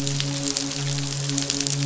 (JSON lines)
{"label": "biophony, midshipman", "recorder": "SoundTrap 500"}